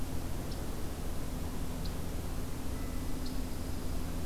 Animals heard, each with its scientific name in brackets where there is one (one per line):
Dark-eyed Junco (Junco hyemalis)